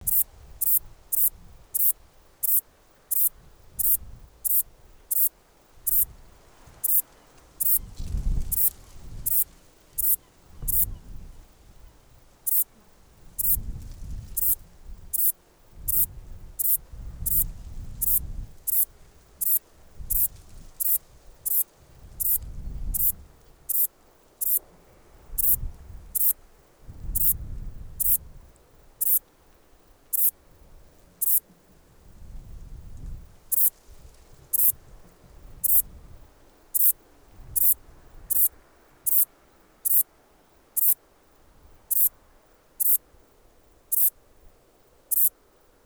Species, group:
Ephippiger diurnus, Orthoptera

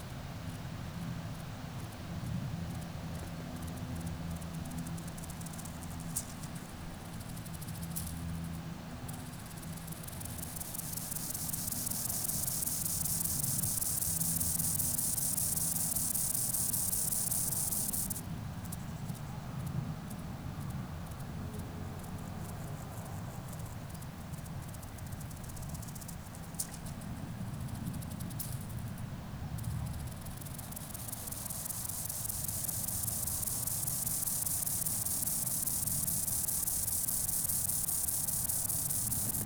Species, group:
Gomphocerippus rufus, Orthoptera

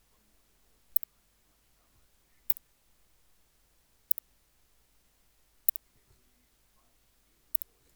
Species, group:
Leptophyes laticauda, Orthoptera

